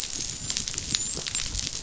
{"label": "biophony, dolphin", "recorder": "SoundTrap 500"}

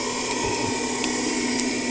{"label": "anthrophony, boat engine", "recorder": "HydroMoth"}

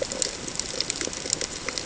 {"label": "ambient", "recorder": "HydroMoth"}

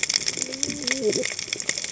{"label": "biophony, cascading saw", "recorder": "HydroMoth"}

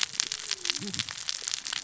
{"label": "biophony, cascading saw", "recorder": "SoundTrap 600 or HydroMoth"}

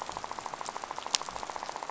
{"label": "biophony, rattle", "recorder": "SoundTrap 500"}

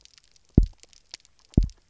{"label": "biophony, double pulse", "recorder": "SoundTrap 300"}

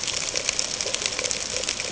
{"label": "ambient", "recorder": "HydroMoth"}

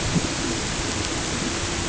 {"label": "ambient", "recorder": "HydroMoth"}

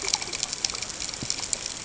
{"label": "ambient", "recorder": "HydroMoth"}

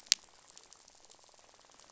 {"label": "biophony, rattle", "recorder": "SoundTrap 500"}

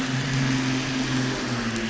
{"label": "anthrophony, boat engine", "recorder": "SoundTrap 500"}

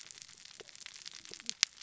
{"label": "biophony, cascading saw", "recorder": "SoundTrap 600 or HydroMoth"}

